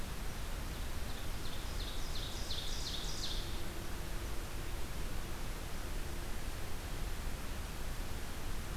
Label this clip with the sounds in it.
Ovenbird